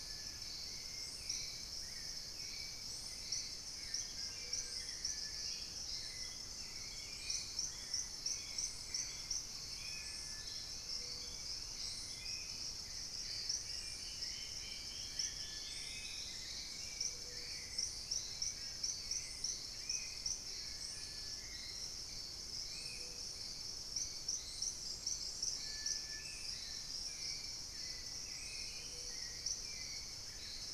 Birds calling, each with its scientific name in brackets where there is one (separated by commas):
Spot-winged Antshrike (Pygiptila stellaris), Plain-winged Antshrike (Thamnophilus schistaceus), Dusky-throated Antshrike (Thamnomanes ardesiacus), Thrush-like Wren (Campylorhynchus turdinus), Gray Antwren (Myrmotherula menetriesii), unidentified bird, Collared Trogon (Trogon collaris), Hauxwell's Thrush (Turdus hauxwelli)